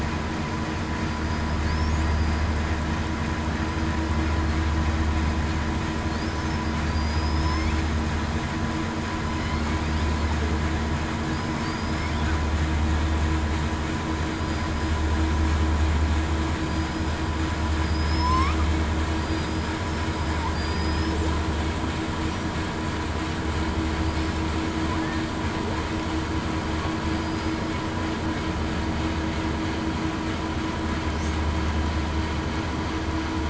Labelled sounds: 2.0	2.3	killer whale, southern resident, 4.8 to 4.9 kHz
6.8	7.7	killer whale, southern resident, 4.6 to 8.0 kHz
11.3	11.7	killer whale, southern resident, 4.8 to 5.3 kHz
14.3	14.7	killer whale, southern resident, 4.8 to 4.9 kHz
16.6	17.0	killer whale, southern resident, 4.7 to 5.0 kHz
17.8	18.5	killer whale, southern resident, 4.8 to 8.0 kHz
19.2	19.8	killer whale, southern resident, 4.7 to 5.1 kHz
20.1	21.1	killer whale, southern resident, 4.6 to 5.2 kHz
27.1	27.6	killer whale, southern resident, 4.8 to 8.0 kHz

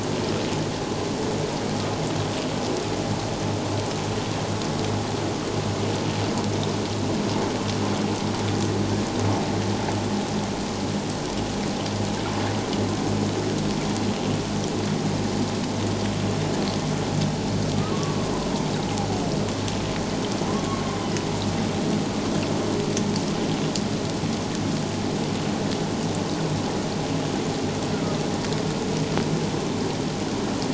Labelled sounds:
17.9	18.2	humpback whale, 1.0 to 1.2 kHz

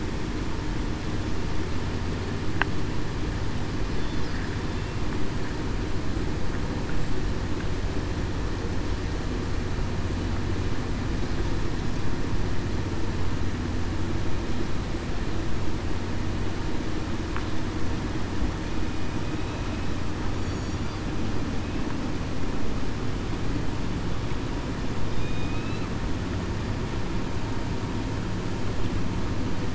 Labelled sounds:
20.4	20.8	killer whale, southern resident, 4.5 to 6.9 kHz
25.1	25.5	killer whale, southern resident, 3.6 to 3.7 kHz

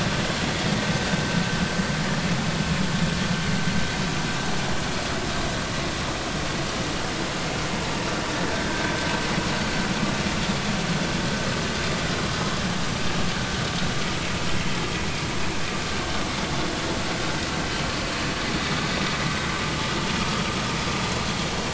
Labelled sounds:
8.6	8.9	vessel noise, 1.5 to 1.6 kHz

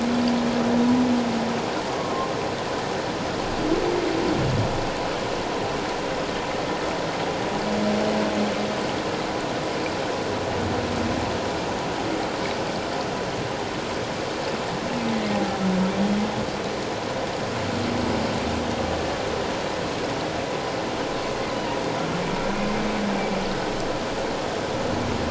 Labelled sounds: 1.9	2.3	humpback whale, 1.0 to 1.2 kHz

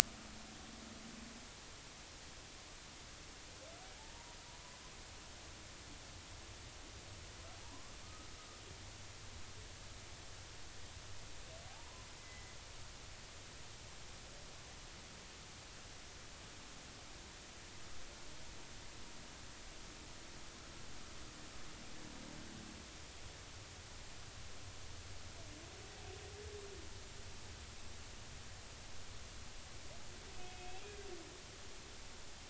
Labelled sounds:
4.0	4.4	humpback whale, 0.83 to 0.99 kHz
7.6	7.9	humpback whale, 0.83 to 1.2 kHz
11.7	12.5	humpback whale, 0.80 to 2.1 kHz
30.3	30.9	humpback whale, 2.5 to 2.8 kHz

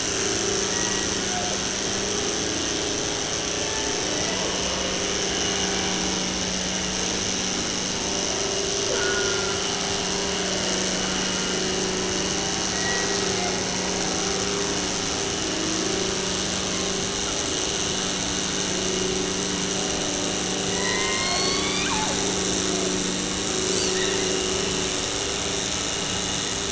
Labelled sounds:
0.7	1.6	killer whale, 0.41 to 2.9 kHz
3.5	4.5	killer whale, 0.47 to 2.1 kHz
8.9	9.9	killer whale, 0.39 to 2.0 kHz
12.7	13.5	killer whale, 0.51 to 2.2 kHz
20.6	22.2	killer whale, 0.43 to 5.5 kHz
23.6	24.2	killer whale, 0.89 to 8.0 kHz

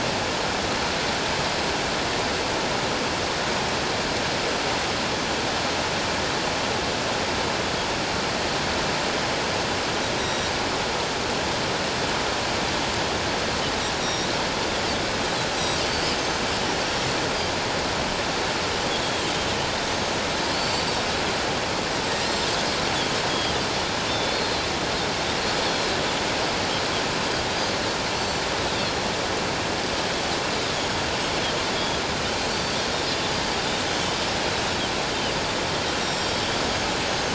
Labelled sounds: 10.2	10.5	Pacific white-sided dolphin, 3.7 to 5.8 kHz
14.0	14.3	Pacific white-sided dolphin, 3.6 to 5.8 kHz
15.9	16.2	Pacific white-sided dolphin, 4.4 to 4.6 kHz
20.5	20.8	Pacific white-sided dolphin, 4.3 to 4.6 kHz
23.2	26.0	Pacific white-sided dolphin, 3.0 to 6.7 kHz
28.1	28.4	Pacific white-sided dolphin, 4.3 to 7.6 kHz
31.8	32.0	Pacific white-sided dolphin, 3.2 to 3.5 kHz
32.5	32.8	Pacific white-sided dolphin, 4.4 to 4.7 kHz
36.0	36.5	Pacific white-sided dolphin, 5.4 to 7.6 kHz
37.0	37.3	Pacific white-sided dolphin, 6.2 to 6.5 kHz

